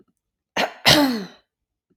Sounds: Throat clearing